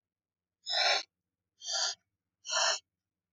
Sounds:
Sniff